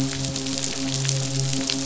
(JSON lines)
{"label": "biophony, midshipman", "recorder": "SoundTrap 500"}